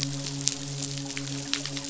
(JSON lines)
{"label": "biophony, midshipman", "recorder": "SoundTrap 500"}